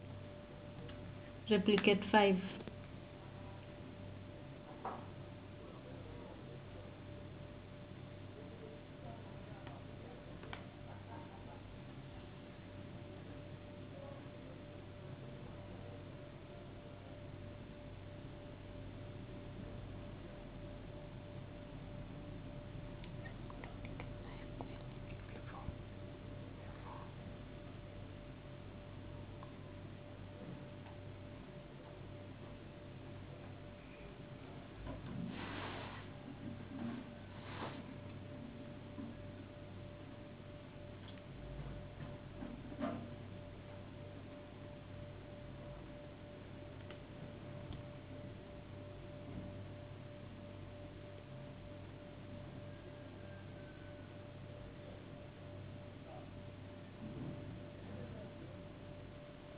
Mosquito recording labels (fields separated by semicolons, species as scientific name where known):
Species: no mosquito; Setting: insect culture